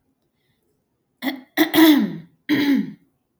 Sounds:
Throat clearing